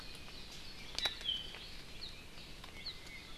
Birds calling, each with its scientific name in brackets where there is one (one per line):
Iiwi (Drepanis coccinea)